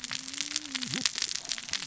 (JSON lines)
{"label": "biophony, cascading saw", "recorder": "SoundTrap 600 or HydroMoth"}